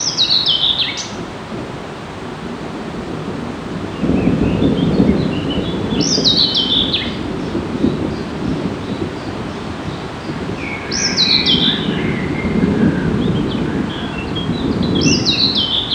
Are there multiple birds?
yes